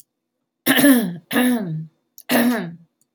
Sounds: Throat clearing